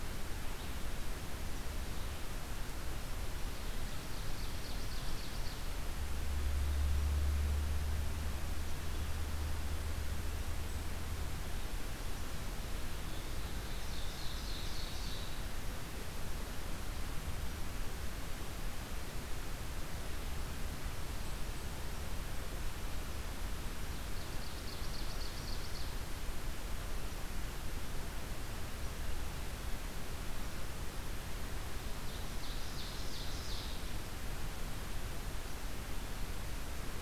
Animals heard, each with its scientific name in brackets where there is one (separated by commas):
Ovenbird (Seiurus aurocapilla)